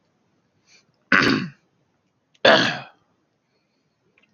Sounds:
Throat clearing